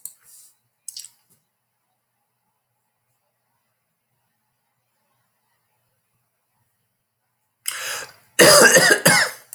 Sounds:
Cough